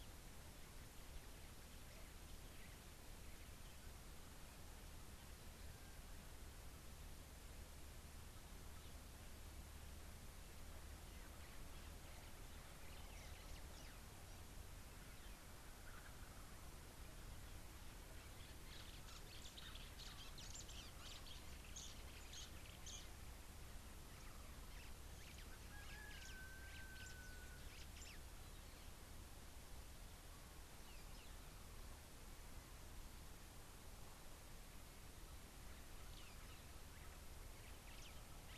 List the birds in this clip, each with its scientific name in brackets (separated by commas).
White-browed Sparrow-Weaver (Plocepasser mahali)